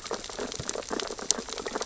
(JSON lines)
{"label": "biophony, sea urchins (Echinidae)", "recorder": "SoundTrap 600 or HydroMoth"}